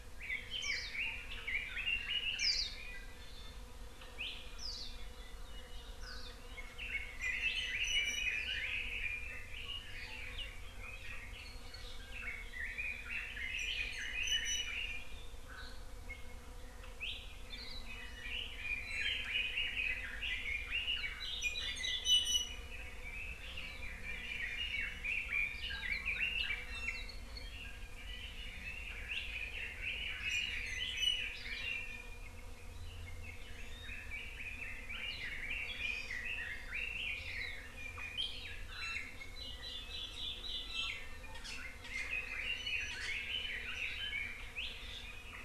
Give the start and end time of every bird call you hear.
0.2s-2.7s: Red-billed Leiothrix (Leiothrix lutea)
0.6s-0.9s: Hawaii Akepa (Loxops coccineus)
2.4s-2.7s: Hawaii Akepa (Loxops coccineus)
3.1s-3.6s: Iiwi (Drepanis coccinea)
4.6s-4.9s: Hawaii Akepa (Loxops coccineus)
6.0s-6.3s: Hawaii Akepa (Loxops coccineus)
6.8s-9.9s: Red-billed Leiothrix (Leiothrix lutea)
7.8s-8.4s: Iiwi (Drepanis coccinea)
12.1s-15.2s: Red-billed Leiothrix (Leiothrix lutea)
14.2s-14.7s: Iiwi (Drepanis coccinea)
17.5s-17.9s: Hawaii Akepa (Loxops coccineus)
17.8s-21.3s: Red-billed Leiothrix (Leiothrix lutea)
18.8s-19.2s: Iiwi (Drepanis coccinea)
22.0s-22.6s: Iiwi (Drepanis coccinea)
22.6s-26.6s: Red-billed Leiothrix (Leiothrix lutea)
26.6s-27.3s: Iiwi (Drepanis coccinea)
27.4s-32.3s: Red-billed Leiothrix (Leiothrix lutea)
31.0s-31.3s: Iiwi (Drepanis coccinea)
32.9s-37.7s: Red-billed Leiothrix (Leiothrix lutea)
35.8s-36.2s: Hawaii Amakihi (Chlorodrepanis virens)
38.7s-39.1s: Iiwi (Drepanis coccinea)
39.3s-40.7s: Hawaii Akepa (Loxops coccineus)
40.6s-41.0s: Iiwi (Drepanis coccinea)
41.4s-44.4s: Red-billed Leiothrix (Leiothrix lutea)

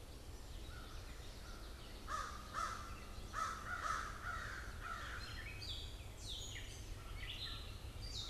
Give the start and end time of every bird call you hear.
0.5s-5.4s: American Crow (Corvus brachyrhynchos)
5.1s-8.3s: Gray Catbird (Dumetella carolinensis)

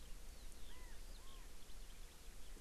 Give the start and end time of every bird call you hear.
0.7s-1.4s: Chinese Hwamei (Garrulax canorus)

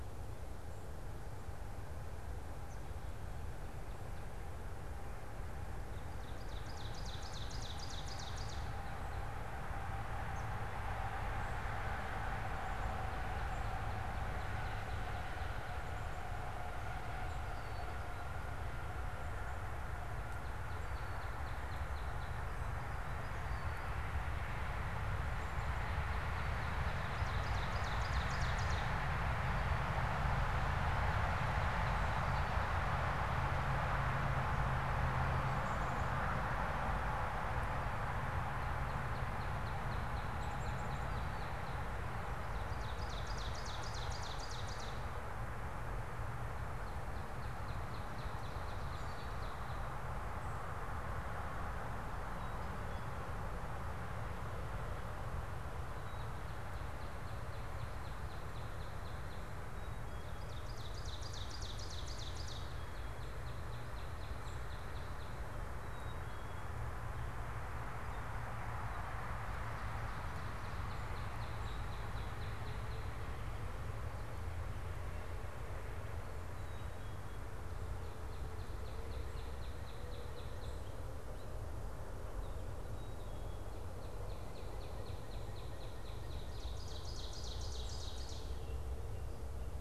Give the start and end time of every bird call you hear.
6.2s-8.8s: Ovenbird (Seiurus aurocapilla)
10.3s-10.5s: unidentified bird
13.5s-15.9s: Northern Cardinal (Cardinalis cardinalis)
17.5s-18.0s: unidentified bird
20.1s-22.5s: Northern Cardinal (Cardinalis cardinalis)
25.4s-27.2s: Northern Cardinal (Cardinalis cardinalis)
27.1s-29.1s: Ovenbird (Seiurus aurocapilla)
35.6s-36.1s: Black-capped Chickadee (Poecile atricapillus)
38.4s-42.1s: Northern Cardinal (Cardinalis cardinalis)
40.3s-41.0s: Black-capped Chickadee (Poecile atricapillus)
42.7s-44.7s: Ovenbird (Seiurus aurocapilla)
46.8s-49.9s: Northern Cardinal (Cardinalis cardinalis)
52.2s-53.2s: Black-capped Chickadee (Poecile atricapillus)
56.0s-56.5s: Black-capped Chickadee (Poecile atricapillus)
56.6s-59.6s: Northern Cardinal (Cardinalis cardinalis)
59.8s-60.4s: Black-capped Chickadee (Poecile atricapillus)
60.3s-62.7s: Ovenbird (Seiurus aurocapilla)
62.9s-65.5s: Northern Cardinal (Cardinalis cardinalis)
65.8s-66.7s: Northern Cardinal (Cardinalis cardinalis)
70.4s-73.1s: Northern Cardinal (Cardinalis cardinalis)
76.5s-77.5s: Black-capped Chickadee (Poecile atricapillus)
77.7s-81.1s: Northern Cardinal (Cardinalis cardinalis)
82.8s-83.7s: Black-capped Chickadee (Poecile atricapillus)
84.0s-86.4s: Northern Cardinal (Cardinalis cardinalis)
86.6s-88.6s: Ovenbird (Seiurus aurocapilla)

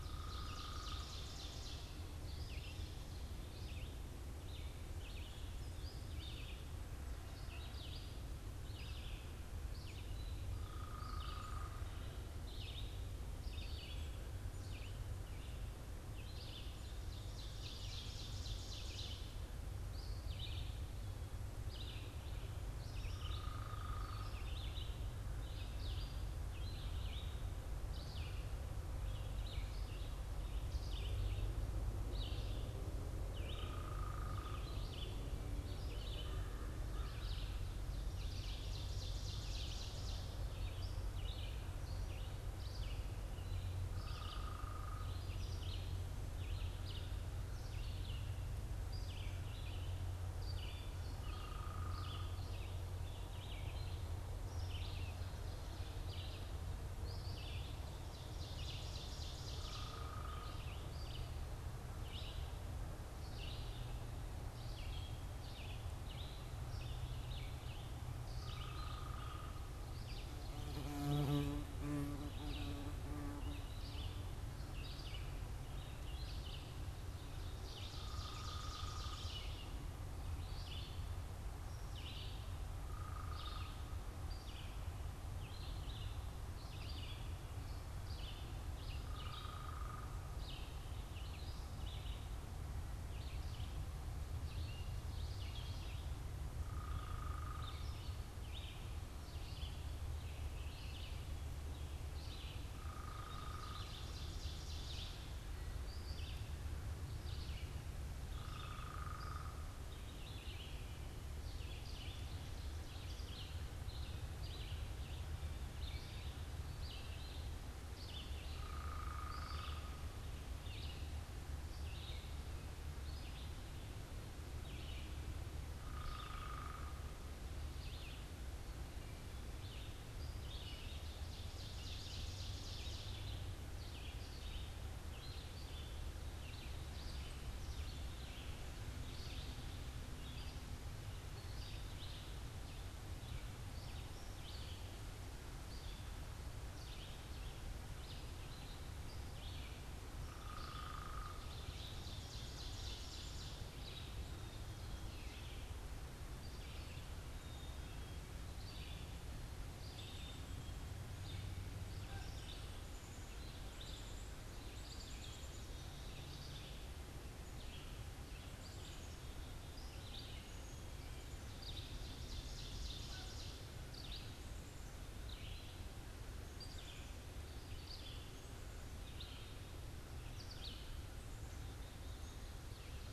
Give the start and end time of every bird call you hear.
0.0s-1.3s: unidentified bird
0.0s-2.2s: Ovenbird (Seiurus aurocapilla)
0.0s-82.6s: Red-eyed Vireo (Vireo olivaceus)
10.3s-12.1s: unidentified bird
16.3s-19.6s: Ovenbird (Seiurus aurocapilla)
23.0s-24.7s: unidentified bird
33.3s-34.8s: unidentified bird
36.1s-37.3s: American Crow (Corvus brachyrhynchos)
37.9s-40.5s: Ovenbird (Seiurus aurocapilla)
43.8s-45.4s: unidentified bird
51.1s-52.3s: unidentified bird
57.6s-60.1s: Ovenbird (Seiurus aurocapilla)
59.4s-60.8s: unidentified bird
68.3s-69.7s: unidentified bird
77.0s-79.9s: Ovenbird (Seiurus aurocapilla)
77.8s-79.3s: unidentified bird
82.6s-84.1s: unidentified bird
83.0s-181.3s: Red-eyed Vireo (Vireo olivaceus)
96.4s-97.9s: unidentified bird
102.5s-104.1s: unidentified bird
103.2s-105.4s: Ovenbird (Seiurus aurocapilla)
108.2s-109.9s: unidentified bird
118.3s-120.2s: unidentified bird
125.6s-127.0s: unidentified bird
130.9s-133.7s: Ovenbird (Seiurus aurocapilla)
149.9s-153.8s: unidentified bird
154.0s-167.0s: Black-capped Chickadee (Poecile atricapillus)
171.3s-173.7s: Ovenbird (Seiurus aurocapilla)

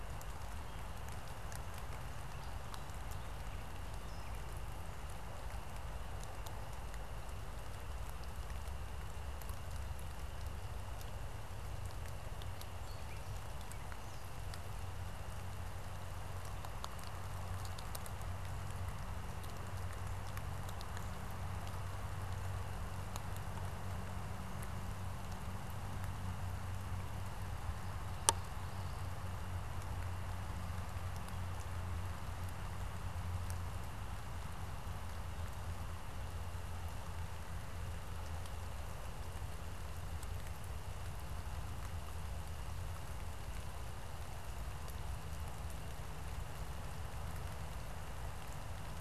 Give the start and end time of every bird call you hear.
27.5s-29.2s: Common Yellowthroat (Geothlypis trichas)

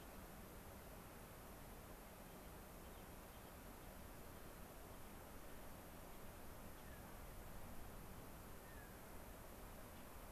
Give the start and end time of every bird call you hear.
2.8s-3.6s: Rock Wren (Salpinctes obsoletus)
4.2s-4.7s: White-crowned Sparrow (Zonotrichia leucophrys)
6.8s-7.1s: Clark's Nutcracker (Nucifraga columbiana)
8.6s-9.3s: Clark's Nutcracker (Nucifraga columbiana)

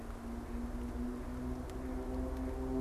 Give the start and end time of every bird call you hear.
0.0s-2.8s: Mallard (Anas platyrhynchos)

